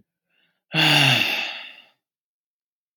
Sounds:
Sigh